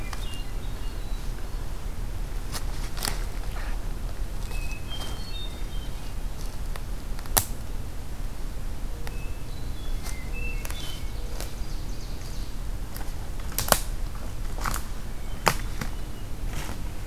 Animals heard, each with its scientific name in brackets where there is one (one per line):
Ovenbird (Seiurus aurocapilla)
Hermit Thrush (Catharus guttatus)
Mourning Dove (Zenaida macroura)